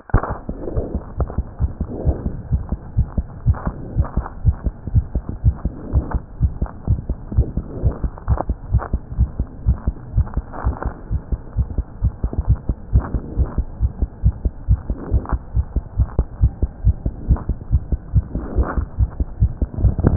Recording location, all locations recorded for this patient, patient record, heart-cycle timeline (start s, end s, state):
aortic valve (AV)
aortic valve (AV)+pulmonary valve (PV)+tricuspid valve (TV)+mitral valve (MV)
#Age: Child
#Sex: Female
#Height: 78.0 cm
#Weight: 10.3 kg
#Pregnancy status: False
#Murmur: Absent
#Murmur locations: nan
#Most audible location: nan
#Systolic murmur timing: nan
#Systolic murmur shape: nan
#Systolic murmur grading: nan
#Systolic murmur pitch: nan
#Systolic murmur quality: nan
#Diastolic murmur timing: nan
#Diastolic murmur shape: nan
#Diastolic murmur grading: nan
#Diastolic murmur pitch: nan
#Diastolic murmur quality: nan
#Outcome: Normal
#Campaign: 2015 screening campaign
0.00	0.53	unannotated
0.53	0.76	diastole
0.76	0.86	S1
0.86	0.92	systole
0.92	1.00	S2
1.00	1.18	diastole
1.18	1.30	S1
1.30	1.38	systole
1.38	1.46	S2
1.46	1.62	diastole
1.62	1.72	S1
1.72	1.82	systole
1.82	1.88	S2
1.88	2.06	diastole
2.06	2.16	S1
2.16	2.25	systole
2.25	2.34	S2
2.34	2.52	diastole
2.52	2.62	S1
2.62	2.70	systole
2.70	2.80	S2
2.80	2.96	diastole
2.96	3.08	S1
3.08	3.16	systole
3.16	3.26	S2
3.26	3.44	diastole
3.44	3.58	S1
3.58	3.66	systole
3.66	3.76	S2
3.76	3.96	diastole
3.96	4.08	S1
4.08	4.15	systole
4.15	4.26	S2
4.26	4.44	diastole
4.44	4.56	S1
4.56	4.63	systole
4.63	4.73	S2
4.73	4.92	diastole
4.92	5.04	S1
5.04	5.13	systole
5.13	5.22	S2
5.22	5.42	diastole
5.42	5.53	S1
5.53	5.63	systole
5.63	5.72	S2
5.72	5.92	diastole
5.92	6.04	S1
6.04	6.12	systole
6.12	6.22	S2
6.22	6.37	diastole
6.37	6.52	S1
6.52	6.59	systole
6.59	6.72	S2
6.72	6.86	diastole
6.86	6.98	S1
6.98	7.07	systole
7.07	7.18	S2
7.18	7.34	diastole
7.34	7.45	S1
7.45	7.54	systole
7.54	7.64	S2
7.64	7.81	diastole
7.81	7.94	S1
7.94	8.01	systole
8.01	8.12	S2
8.12	8.26	diastole
8.26	8.40	S1
8.40	8.46	systole
8.46	8.56	S2
8.56	8.71	diastole
8.71	8.81	S1
8.81	8.91	systole
8.91	9.02	S2
9.02	9.15	diastole
9.15	9.30	S1
9.30	9.36	systole
9.36	9.50	S2
9.50	9.66	diastole
9.66	9.75	S1
9.75	9.84	systole
9.84	9.94	S2
9.94	10.13	diastole
10.13	10.24	S1
10.24	10.35	systole
10.35	10.44	S2
10.44	10.63	diastole
10.63	10.74	S1
10.74	10.82	systole
10.82	10.92	S2
10.92	11.08	diastole
11.08	11.22	S1
11.22	11.30	systole
11.30	11.40	S2
11.40	11.54	diastole
11.54	11.68	S1
11.68	11.75	systole
11.75	11.86	S2
11.86	12.00	diastole
12.00	12.12	S1
12.12	12.20	systole
12.20	12.29	S2
12.29	12.44	diastole
12.44	12.57	S1
12.57	12.66	systole
12.66	12.76	S2
12.76	12.91	diastole
12.91	13.04	S1
13.04	13.11	systole
13.11	13.22	S2
13.22	13.36	diastole
13.36	13.48	S1
13.48	13.55	systole
13.55	13.66	S2
13.66	13.79	diastole
13.79	13.92	S1
13.92	13.99	systole
13.99	14.08	S2
14.08	14.21	diastole
14.21	14.34	S1
14.34	14.42	systole
14.42	14.52	S2
14.52	14.65	diastole
14.65	14.80	S1
14.80	14.87	systole
14.87	14.96	S2
14.96	15.10	diastole
15.10	15.23	S1
15.23	15.30	systole
15.30	15.40	S2
15.40	15.52	diastole
15.52	15.66	S1
15.66	15.73	systole
15.73	15.84	S2
15.84	15.96	diastole
15.96	20.16	unannotated